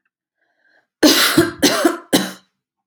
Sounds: Cough